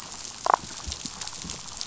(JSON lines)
{"label": "biophony, damselfish", "recorder": "SoundTrap 500"}